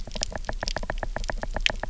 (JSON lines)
{"label": "biophony, knock", "recorder": "SoundTrap 300"}